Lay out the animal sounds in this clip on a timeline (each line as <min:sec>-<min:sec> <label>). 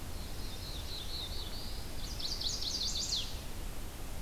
0:00.0-0:02.0 Black-throated Blue Warbler (Setophaga caerulescens)
0:01.8-0:03.4 Chestnut-sided Warbler (Setophaga pensylvanica)